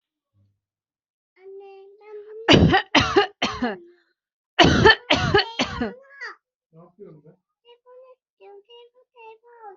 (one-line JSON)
{"expert_labels": [{"quality": "ok", "cough_type": "dry", "dyspnea": false, "wheezing": false, "stridor": false, "choking": false, "congestion": false, "nothing": true, "diagnosis": "upper respiratory tract infection", "severity": "unknown"}], "age": 32, "gender": "female", "respiratory_condition": false, "fever_muscle_pain": false, "status": "healthy"}